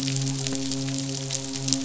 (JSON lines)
{"label": "biophony, midshipman", "recorder": "SoundTrap 500"}